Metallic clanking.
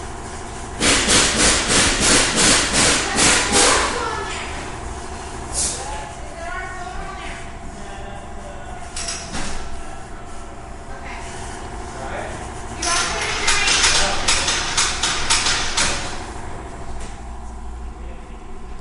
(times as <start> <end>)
8.7 9.5